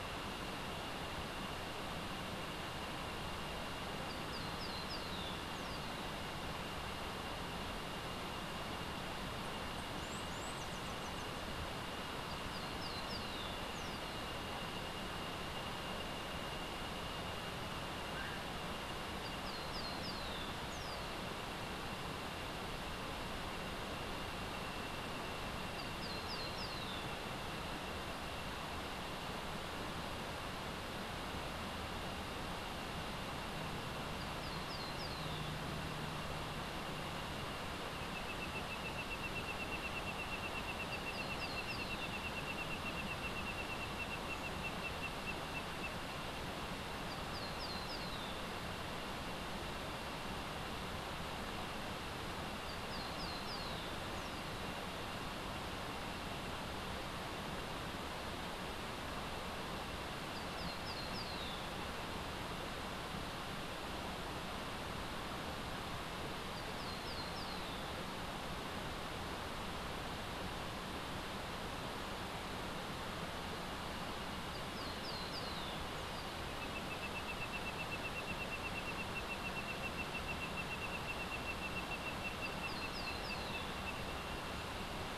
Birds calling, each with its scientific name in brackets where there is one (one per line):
Common Pauraque (Nyctidromus albicollis)
Cabanis's Ground-Sparrow (Melozone cabanisi)